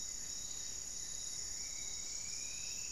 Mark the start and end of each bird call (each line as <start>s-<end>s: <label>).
0.0s-1.4s: Buff-breasted Wren (Cantorchilus leucotis)
0.0s-1.8s: Goeldi's Antbird (Akletos goeldii)
0.0s-2.9s: Spot-winged Antshrike (Pygiptila stellaris)
1.1s-2.9s: Striped Woodcreeper (Xiphorhynchus obsoletus)